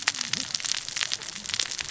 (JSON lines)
{"label": "biophony, cascading saw", "recorder": "SoundTrap 600 or HydroMoth"}